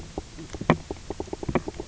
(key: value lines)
label: biophony, knock croak
recorder: SoundTrap 300